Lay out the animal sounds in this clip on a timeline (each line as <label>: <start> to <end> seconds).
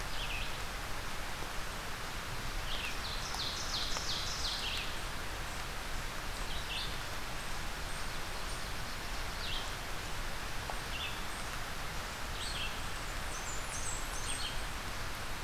Red-eyed Vireo (Vireo olivaceus): 0.0 to 15.4 seconds
Ovenbird (Seiurus aurocapilla): 2.7 to 4.7 seconds
unidentified call: 4.2 to 12.7 seconds
Yellow-rumped Warbler (Setophaga coronata): 8.0 to 9.4 seconds
Blackburnian Warbler (Setophaga fusca): 13.1 to 14.7 seconds